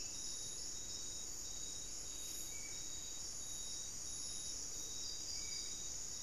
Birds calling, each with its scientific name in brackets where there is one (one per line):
Spot-winged Antshrike (Pygiptila stellaris)